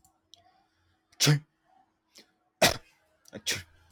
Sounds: Sneeze